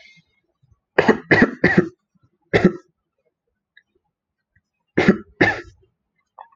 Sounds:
Cough